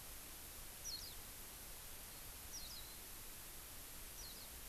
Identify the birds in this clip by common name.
Warbling White-eye